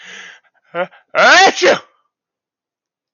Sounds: Sneeze